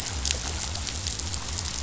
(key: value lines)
label: biophony
recorder: SoundTrap 500